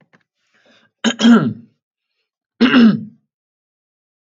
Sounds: Throat clearing